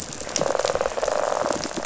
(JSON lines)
{"label": "biophony, rattle response", "recorder": "SoundTrap 500"}